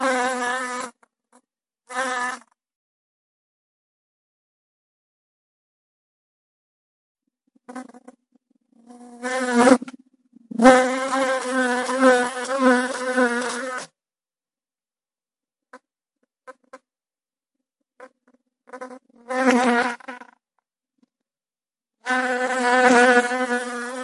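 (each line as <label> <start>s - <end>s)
A bee is flying. 0.0s - 2.5s
A bee is flying. 7.2s - 13.9s
A bee is flying. 15.7s - 15.8s
A bee is flying. 16.4s - 16.8s
A bee is flying. 18.0s - 18.1s
A bee is flying. 18.7s - 20.4s
A bee is flying. 22.0s - 24.0s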